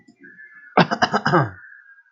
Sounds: Throat clearing